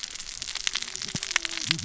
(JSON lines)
{"label": "biophony, cascading saw", "recorder": "SoundTrap 600 or HydroMoth"}